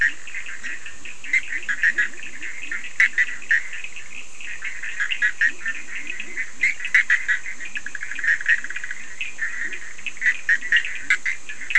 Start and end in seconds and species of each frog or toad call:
0.0	3.2	Leptodactylus latrans
0.0	11.7	Boana bischoffi
0.0	11.7	Sphaenorhynchus surdus
5.2	11.7	Leptodactylus latrans

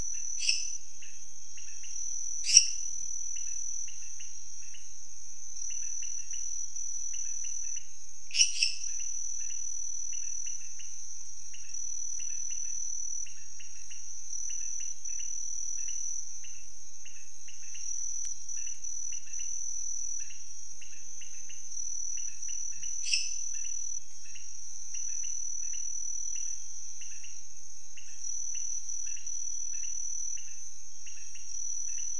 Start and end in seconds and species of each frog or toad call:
0.0	32.1	Leptodactylus podicipinus
0.2	0.9	Dendropsophus minutus
2.4	2.9	Dendropsophus minutus
8.3	9.2	Dendropsophus minutus
22.9	23.7	Dendropsophus minutus

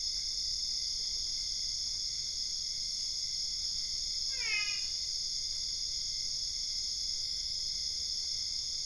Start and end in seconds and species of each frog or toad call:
4.2	5.1	Physalaemus marmoratus

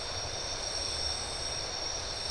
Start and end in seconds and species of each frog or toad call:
none

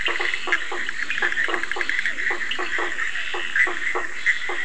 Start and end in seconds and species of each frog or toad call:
0.0	0.2	Sphaenorhynchus surdus
0.0	4.3	Boana bischoffi
0.0	4.6	Boana faber
0.0	4.6	Dendropsophus nahdereri
0.0	4.6	Physalaemus cuvieri
0.0	4.6	Scinax perereca
0.7	2.8	Leptodactylus latrans
2.4	2.8	Sphaenorhynchus surdus

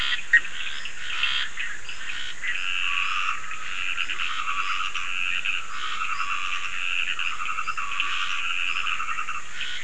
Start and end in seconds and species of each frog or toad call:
0.0	9.8	Scinax perereca
0.2	0.6	Leptodactylus latrans
2.3	9.6	Dendropsophus nahdereri
3.9	4.3	Leptodactylus latrans
7.9	8.2	Leptodactylus latrans

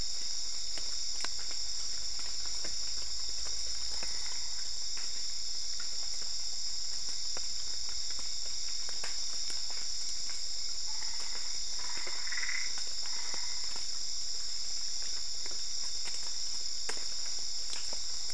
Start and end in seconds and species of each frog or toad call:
10.9	13.8	Boana albopunctata

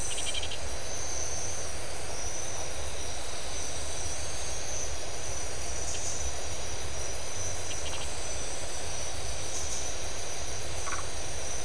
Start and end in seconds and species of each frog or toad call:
0.0	0.7	Scinax rizibilis
7.6	8.1	Scinax rizibilis
10.7	11.1	Phyllomedusa distincta

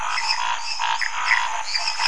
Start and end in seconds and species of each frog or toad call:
0.0	2.0	Dendropsophus minutus
0.0	2.0	Dendropsophus nanus
0.0	2.0	Pithecopus azureus
0.0	2.0	Scinax fuscovarius
1.5	2.0	Physalaemus nattereri

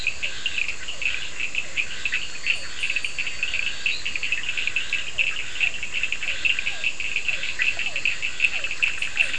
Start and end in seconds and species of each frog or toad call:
0.0	4.9	Elachistocleis bicolor
0.0	9.3	Scinax perereca
0.0	9.3	Sphaenorhynchus surdus
2.1	2.2	Boana bischoffi
7.4	9.3	Elachistocleis bicolor

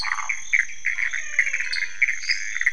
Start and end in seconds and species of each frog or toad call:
0.0	0.2	Dendropsophus nanus
0.0	2.7	Pithecopus azureus
0.0	0.3	Phyllomedusa sauvagii
0.8	2.0	Physalaemus albonotatus
1.7	2.5	Dendropsophus nanus

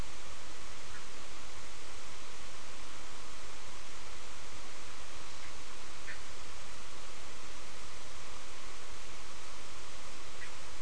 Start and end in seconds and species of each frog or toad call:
5.4	6.5	Boana bischoffi
10.3	10.8	Boana bischoffi

